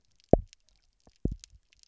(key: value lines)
label: biophony, double pulse
recorder: SoundTrap 300